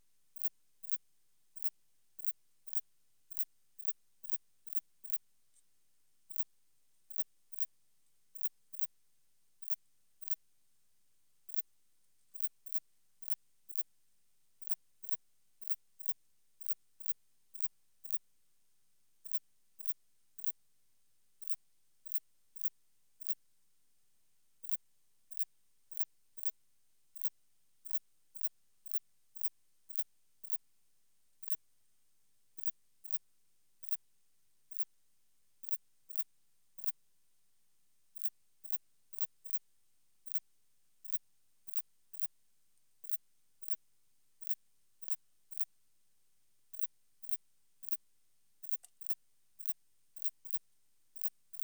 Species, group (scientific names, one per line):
Tessellana orina
Orthoptera